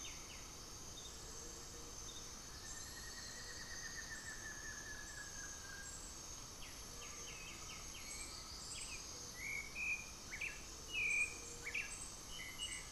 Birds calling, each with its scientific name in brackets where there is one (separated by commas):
Gray-fronted Dove (Leptotila rufaxilla), White-winged Becard (Pachyramphus polychopterus), Undulated Tinamou (Crypturellus undulatus), Buff-throated Woodcreeper (Xiphorhynchus guttatus)